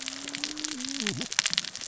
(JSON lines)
{"label": "biophony, cascading saw", "recorder": "SoundTrap 600 or HydroMoth"}